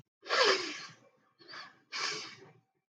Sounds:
Sniff